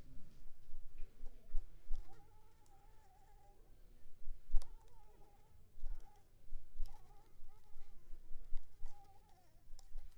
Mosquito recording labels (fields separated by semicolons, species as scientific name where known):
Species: Anopheles arabiensis; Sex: female; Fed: unfed; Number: one; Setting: cup